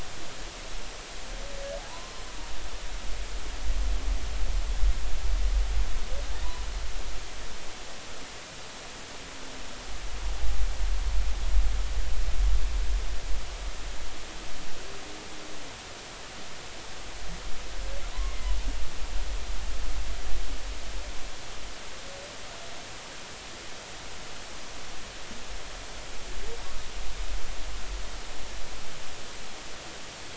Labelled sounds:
1.9	2.2	humpback whale, 0.83 to 1.1 kHz
18.1	18.5	humpback whale, 0.96 to 2.2 kHz

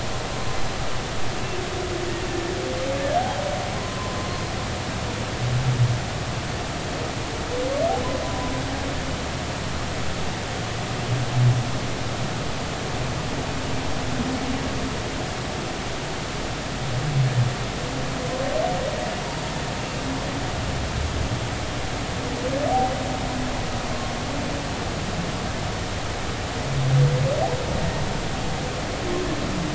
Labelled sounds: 2.3	2.5	humpback whale, 1.7 to 1.9 kHz
3.8	4.2	humpback whale, 0.96 to 1.1 kHz
8.2	8.5	humpback whale, 0.96 to 1.1 kHz

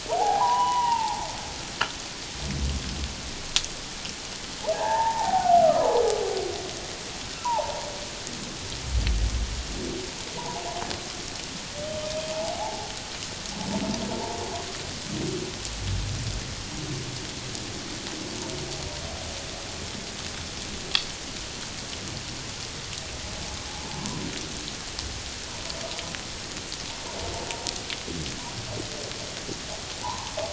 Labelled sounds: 4.7	6.0	humpback whale, 0.78 to 1.9 kHz
7.4	7.9	humpback whale, 0.78 to 1.1 kHz
10.4	10.7	humpback whale, 0.78 to 1.0 kHz
12.3	12.9	humpback whale, 0.78 to 0.94 kHz
30.0	30.3	humpback whale, 0.78 to 1.1 kHz

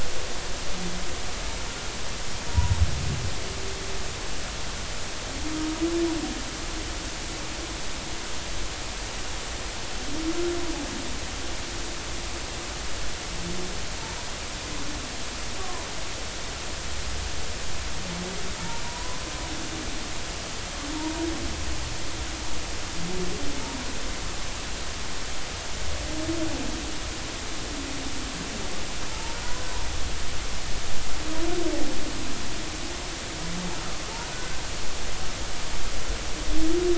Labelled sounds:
2.5	2.7	humpback whale, 0.93 to 1.0 kHz
15.6	15.9	humpback whale, 0.93 to 1.2 kHz
19.8	21.3	humpback whale, 0.86 to 1.1 kHz
29.1	29.7	humpback whale, 0.83 to 1.6 kHz
34.3	34.6	humpback whale, 1.4 to 1.6 kHz

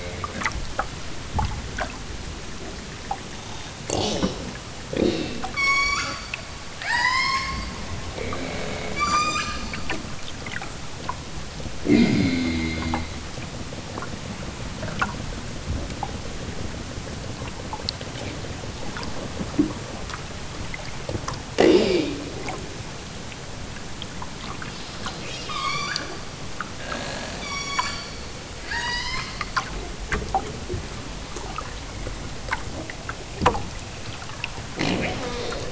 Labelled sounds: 5.5	6.2	killer whale, southern Alaska resident, 0.83 to 8.0 kHz
6.8	7.6	killer whale, southern Alaska resident, 0.55 to 8.0 kHz
8.9	9.6	killer whale, southern Alaska resident, 0.83 to 8.0 kHz
25.4	26.2	killer whale, southern Alaska resident, 0.73 to 8.0 kHz
27.4	28.2	killer whale, southern Alaska resident, 0.73 to 8.0 kHz
28.6	29.4	killer whale, southern Alaska resident, 0.50 to 8.0 kHz

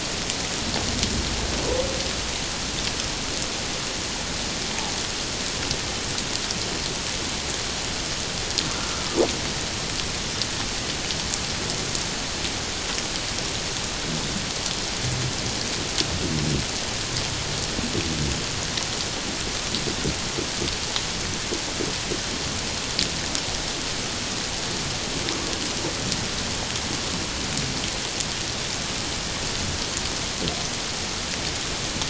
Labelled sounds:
8.8	9.1	humpback whale, 1.2 to 1.4 kHz

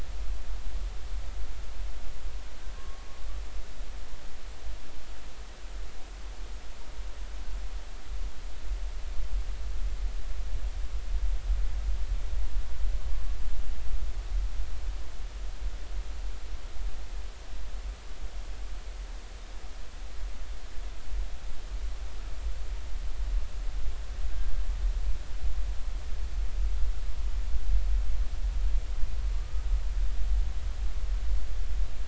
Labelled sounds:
2.8	3.1	humpback whale, 1.0 to 1.2 kHz
29.3	29.6	humpback whale, 1.1 to 1.3 kHz

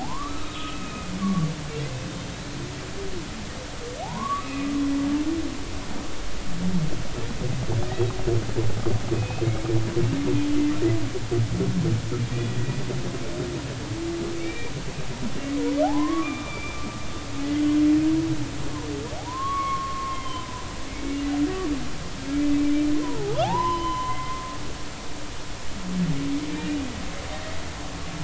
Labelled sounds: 0.0	1.5	humpback whale, 0.80 to 2.6 kHz
4.0	4.7	humpback whale, 0.80 to 2.7 kHz
9.1	9.5	humpback whale, 2.5 to 2.7 kHz
12.5	12.8	humpback whale, 1.9 to 2.0 kHz
14.4	14.7	humpback whale, 1.8 to 2.4 kHz
15.8	16.8	humpback whale, 0.80 to 3.6 kHz
19.2	20.7	humpback whale, 0.80 to 3.3 kHz
23.0	24.4	humpback whale, 0.80 to 5.1 kHz
26.5	26.8	humpback whale, 2.3 to 2.5 kHz

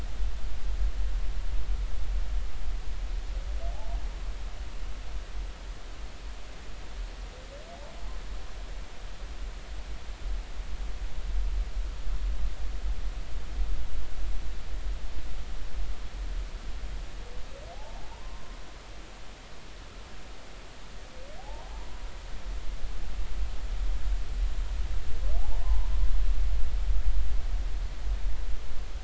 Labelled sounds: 17.7	18.6	humpback whale, 0.80 to 1.1 kHz
21.4	22.0	humpback whale, 0.80 to 1.1 kHz
25.6	25.9	humpback whale, 0.80 to 1.1 kHz

